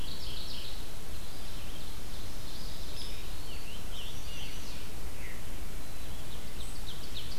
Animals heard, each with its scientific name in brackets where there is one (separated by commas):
Mourning Warbler (Geothlypis philadelphia), Scarlet Tanager (Piranga olivacea), Eastern Wood-Pewee (Contopus virens), Veery (Catharus fuscescens), Ovenbird (Seiurus aurocapilla), Chestnut-sided Warbler (Setophaga pensylvanica), Red-eyed Vireo (Vireo olivaceus)